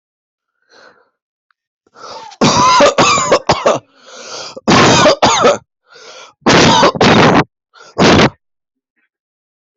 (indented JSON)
{
  "expert_labels": [
    {
      "quality": "good",
      "cough_type": "wet",
      "dyspnea": false,
      "wheezing": false,
      "stridor": false,
      "choking": false,
      "congestion": false,
      "nothing": true,
      "diagnosis": "lower respiratory tract infection",
      "severity": "severe"
    }
  ],
  "gender": "female",
  "respiratory_condition": false,
  "fever_muscle_pain": false,
  "status": "COVID-19"
}